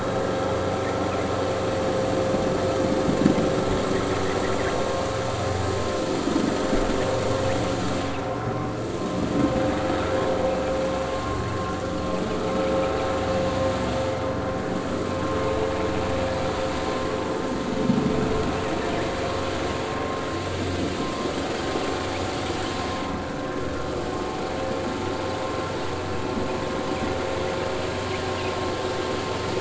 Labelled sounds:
11.1	11.4	vessel noise, 1.0 to 1.2 kHz

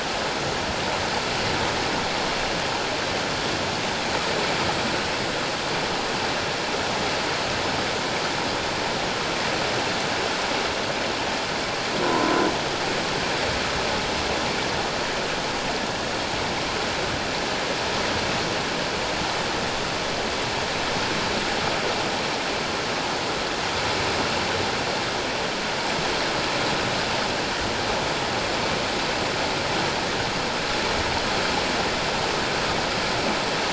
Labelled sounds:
12.0	12.3	croaking sound likely from a nearby submerged object, 0.91 to 1.1 kHz

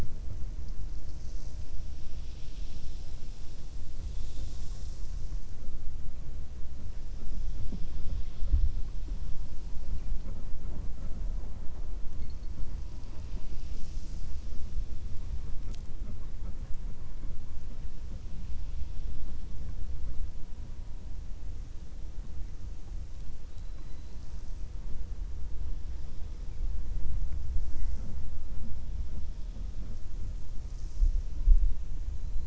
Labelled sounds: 23.4	24.5	killer whale, 3.1 to 6.9 kHz

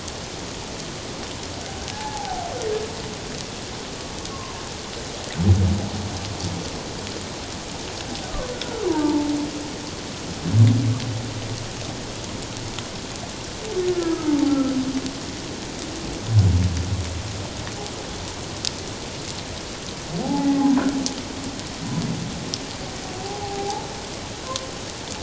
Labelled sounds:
1.9	2.5	humpback whale, 0.78 to 1.8 kHz
4.3	4.6	humpback whale, 0.88 to 1.2 kHz
8.5	9.3	humpback whale, 0.84 to 1.5 kHz
13.9	14.7	humpback whale, 1.2 to 1.8 kHz
20.2	20.8	humpback whale, 0.78 to 2.0 kHz
23.2	23.9	humpback whale, 0.78 to 0.97 kHz

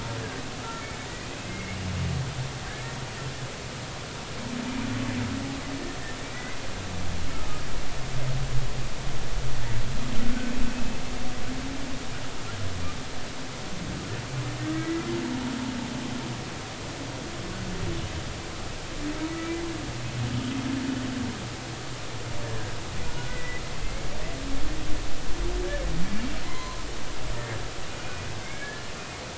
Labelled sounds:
1.2	1.8	humpback whale, 2.0 to 2.7 kHz
2.7	2.9	humpback whale, 1.5 to 1.9 kHz
6.3	6.6	humpback whale, 1.9 to 2.1 kHz
14.7	15.1	humpback whale, 1.8 to 2.0 kHz
22.4	22.7	humpback whale, 1.6 to 1.9 kHz
23.3	23.6	humpback whale, 1.9 to 2.0 kHz
26.4	26.9	humpback whale, 0.90 to 2.1 kHz
27.3	27.6	humpback whale, 1.7 to 1.9 kHz
28.0	28.8	humpback whale, 1.6 to 2.6 kHz

